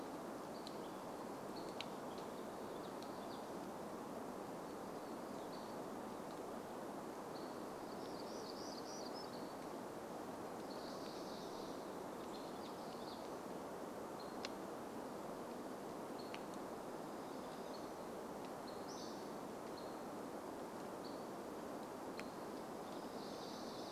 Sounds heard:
warbler song, Hammond's Flycatcher song, Hammond's Flycatcher call

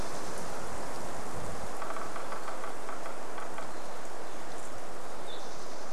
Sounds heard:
Spotted Towhee song, woodpecker drumming

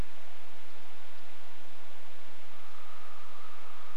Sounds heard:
woodpecker drumming, unidentified bird chip note

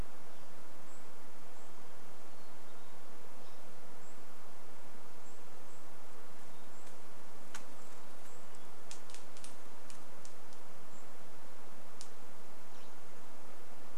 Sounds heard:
unidentified sound, Golden-crowned Kinglet call

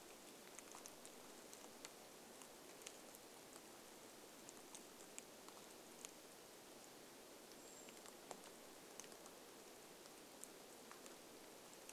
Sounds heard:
rain, Brown Creeper call

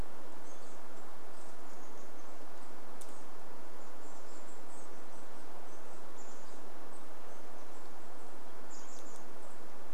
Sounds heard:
Chestnut-backed Chickadee call

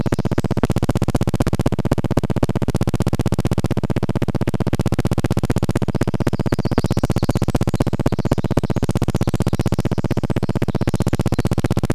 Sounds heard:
Pacific Wren song, recorder noise

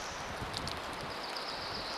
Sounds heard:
rain, unidentified sound

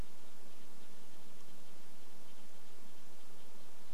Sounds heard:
Red-breasted Nuthatch song

